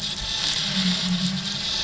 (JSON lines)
{"label": "anthrophony, boat engine", "recorder": "SoundTrap 500"}